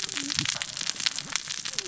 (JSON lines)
{"label": "biophony, cascading saw", "recorder": "SoundTrap 600 or HydroMoth"}